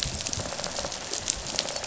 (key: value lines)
label: biophony, dolphin
recorder: SoundTrap 500

label: biophony, rattle response
recorder: SoundTrap 500